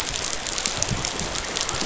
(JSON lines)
{"label": "biophony", "recorder": "SoundTrap 500"}